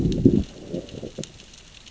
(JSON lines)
{"label": "biophony, growl", "recorder": "SoundTrap 600 or HydroMoth"}